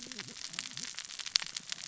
{"label": "biophony, cascading saw", "recorder": "SoundTrap 600 or HydroMoth"}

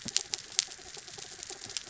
{"label": "anthrophony, mechanical", "recorder": "SoundTrap 300"}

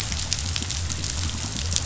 {"label": "biophony", "recorder": "SoundTrap 500"}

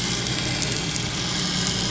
{"label": "anthrophony, boat engine", "recorder": "SoundTrap 500"}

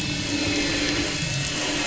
{"label": "anthrophony, boat engine", "recorder": "SoundTrap 500"}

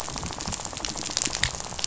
{"label": "biophony, rattle", "recorder": "SoundTrap 500"}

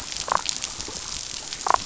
{"label": "biophony, damselfish", "recorder": "SoundTrap 500"}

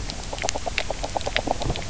{"label": "biophony, knock croak", "recorder": "SoundTrap 300"}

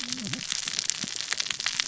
{"label": "biophony, cascading saw", "recorder": "SoundTrap 600 or HydroMoth"}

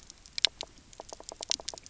{"label": "biophony, knock", "recorder": "SoundTrap 300"}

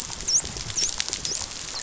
{"label": "biophony, dolphin", "recorder": "SoundTrap 500"}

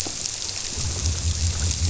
{"label": "biophony", "recorder": "SoundTrap 300"}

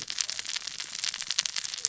{"label": "biophony, cascading saw", "recorder": "SoundTrap 600 or HydroMoth"}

